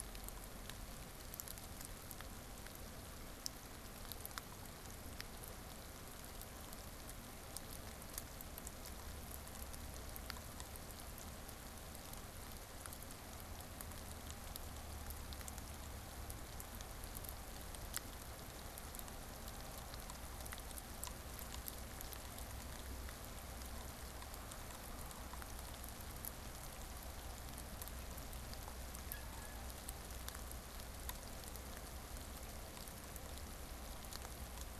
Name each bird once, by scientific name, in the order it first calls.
Aix sponsa